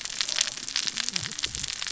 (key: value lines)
label: biophony, cascading saw
recorder: SoundTrap 600 or HydroMoth